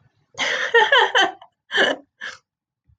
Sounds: Laughter